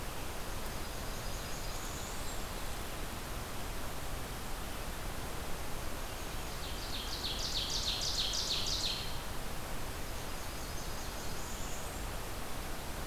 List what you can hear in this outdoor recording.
Blackburnian Warbler, Ovenbird